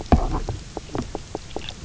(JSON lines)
{"label": "biophony, knock croak", "recorder": "SoundTrap 300"}